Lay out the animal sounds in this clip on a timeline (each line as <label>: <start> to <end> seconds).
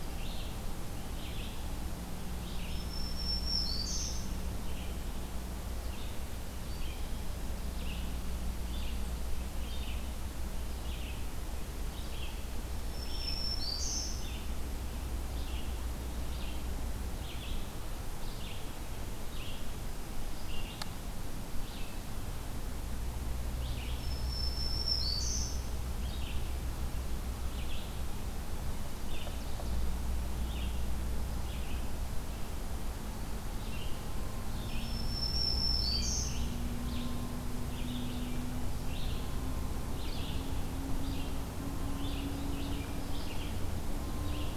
Red-eyed Vireo (Vireo olivaceus): 0.0 to 44.6 seconds
Black-throated Green Warbler (Setophaga virens): 2.3 to 4.2 seconds
Black-throated Green Warbler (Setophaga virens): 6.3 to 7.9 seconds
Black-throated Green Warbler (Setophaga virens): 12.5 to 14.1 seconds
Black-throated Green Warbler (Setophaga virens): 19.6 to 20.9 seconds
Black-throated Green Warbler (Setophaga virens): 23.8 to 25.6 seconds
Black-throated Green Warbler (Setophaga virens): 34.2 to 36.3 seconds